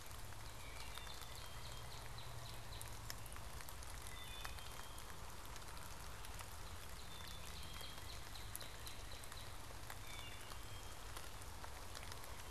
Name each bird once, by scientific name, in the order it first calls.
Cardinalis cardinalis, Hylocichla mustelina, Poecile atricapillus